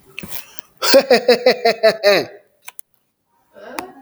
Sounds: Laughter